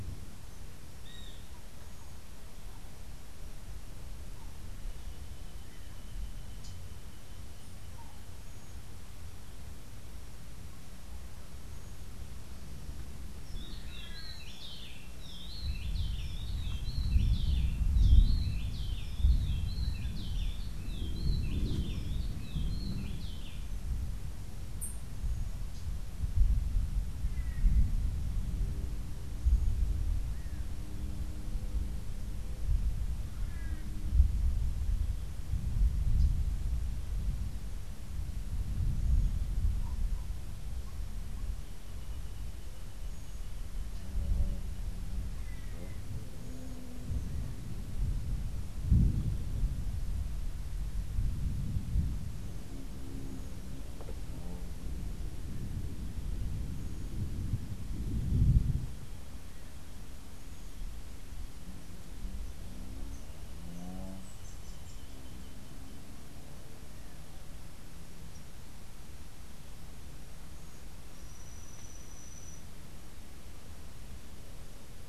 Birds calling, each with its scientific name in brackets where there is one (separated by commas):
Rufous-breasted Wren (Pheugopedius rutilus), Great Kiskadee (Pitangus sulphuratus), Long-tailed Manakin (Chiroxiphia linearis), Rufous-capped Warbler (Basileuterus rufifrons), Rufous-tailed Hummingbird (Amazilia tzacatl)